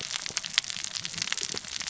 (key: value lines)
label: biophony, cascading saw
recorder: SoundTrap 600 or HydroMoth